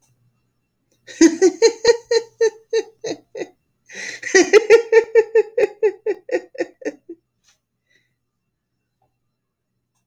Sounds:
Laughter